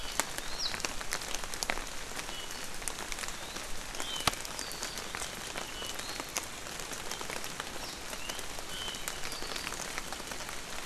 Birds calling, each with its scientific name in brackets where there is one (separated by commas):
Iiwi (Drepanis coccinea), Warbling White-eye (Zosterops japonicus)